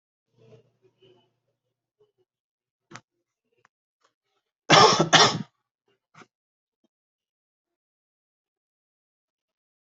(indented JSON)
{
  "expert_labels": [
    {
      "quality": "good",
      "cough_type": "dry",
      "dyspnea": false,
      "wheezing": false,
      "stridor": false,
      "choking": false,
      "congestion": false,
      "nothing": true,
      "diagnosis": "healthy cough",
      "severity": "pseudocough/healthy cough"
    }
  ]
}